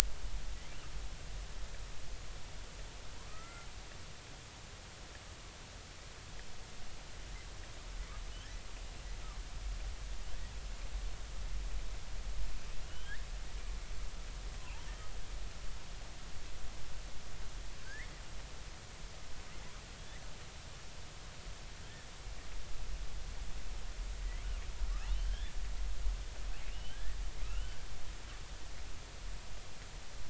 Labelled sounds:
3.2	3.7	killer whale, southern resident, J clan, 0.93 to 2.1 kHz
12.8	13.2	killer whale, southern resident, J clan, 2.8 to 3.4 kHz
14.6	14.8	killer whale, southern resident, J clan, 0.80 to 1.1 kHz
17.8	18.1	killer whale, southern resident, J clan, 1.4 to 2.2 kHz
25.0	25.5	killer whale, southern resident, J clan, 1.5 to 3.6 kHz
26.7	27.8	killer whale, southern resident, J clan, 1.2 to 3.2 kHz

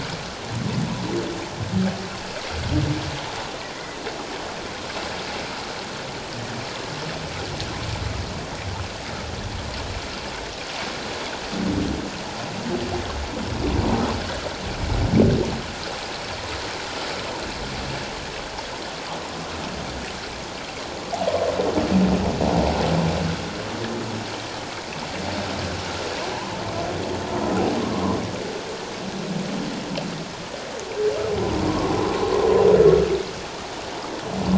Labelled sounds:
27.8	28.2	humpback whale, 0.94 to 1.2 kHz
31.6	31.9	humpback whale, 0.91 to 1.2 kHz

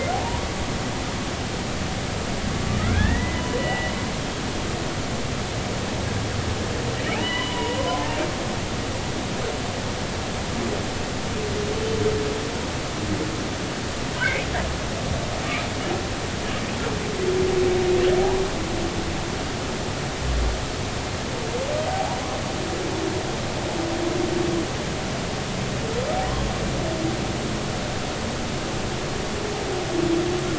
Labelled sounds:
2.8	3.9	humpback whale, 1.2 to 2.0 kHz
7.1	8.2	humpback whale, 0.80 to 3.1 kHz
21.9	22.2	humpback whale, 0.80 to 0.99 kHz

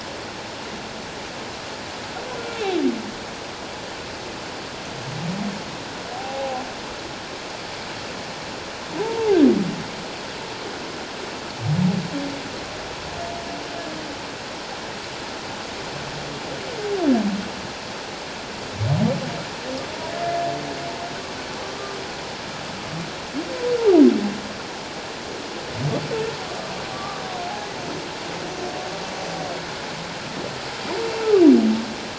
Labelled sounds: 6.1	6.6	humpback whale, 0.78 to 1.0 kHz
9.0	9.4	humpback whale, 0.78 to 1.0 kHz
26.5	27.2	humpback whale, 1.1 to 1.3 kHz

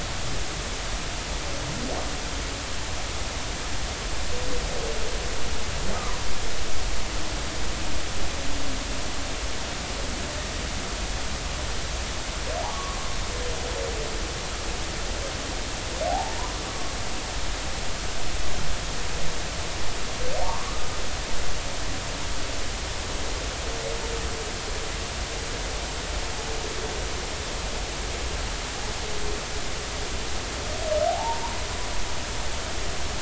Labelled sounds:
5.9	6.3	humpback whale, 0.93 to 1.3 kHz
12.7	13.0	humpback whale, 0.99 to 1.2 kHz
16.1	16.9	humpback whale, 0.80 to 1.2 kHz
21.4	21.8	humpback whale, 0.86 to 1.3 kHz
31.1	31.6	humpback whale, 0.80 to 1.1 kHz

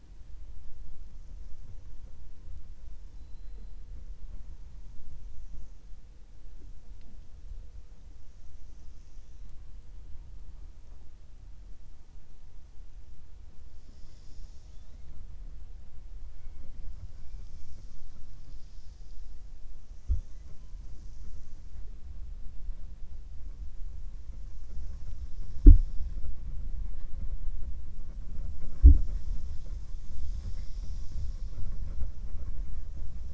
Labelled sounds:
3.0	3.7	killer whale, 3.5 to 4.7 kHz

